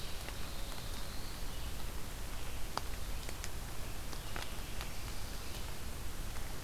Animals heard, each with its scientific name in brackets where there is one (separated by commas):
Black-throated Blue Warbler (Setophaga caerulescens)